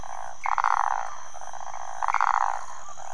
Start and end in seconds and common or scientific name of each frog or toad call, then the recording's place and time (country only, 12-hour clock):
0.0	3.1	waxy monkey tree frog
0.4	0.5	Pithecopus azureus
2.1	2.2	Pithecopus azureus
Brazil, 4:00am